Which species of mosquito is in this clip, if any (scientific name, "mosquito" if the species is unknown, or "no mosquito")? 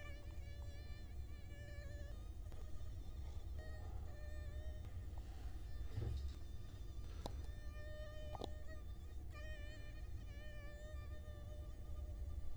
Culex quinquefasciatus